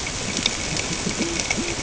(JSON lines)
{"label": "ambient", "recorder": "HydroMoth"}